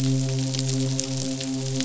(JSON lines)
{"label": "biophony, midshipman", "recorder": "SoundTrap 500"}